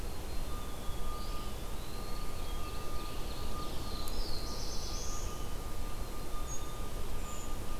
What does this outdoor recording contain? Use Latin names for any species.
Poecile atricapillus, Contopus virens, Seiurus aurocapilla, Setophaga caerulescens, Certhia americana